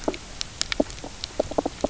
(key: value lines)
label: biophony, knock croak
recorder: SoundTrap 300